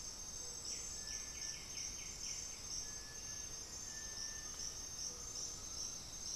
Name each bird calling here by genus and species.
Crypturellus cinereus, Pachyramphus polychopterus, Crypturellus undulatus, Myrmophylax atrothorax